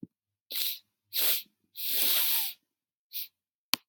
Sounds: Sniff